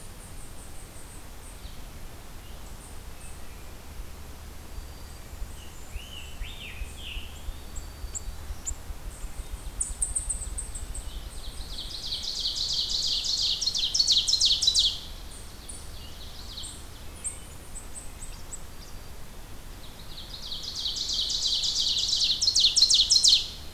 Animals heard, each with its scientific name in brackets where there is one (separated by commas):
unknown mammal, Hermit Thrush (Catharus guttatus), Ovenbird (Seiurus aurocapilla), Scarlet Tanager (Piranga olivacea), Black-throated Green Warbler (Setophaga virens), Blackburnian Warbler (Setophaga fusca)